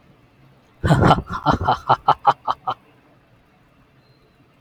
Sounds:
Laughter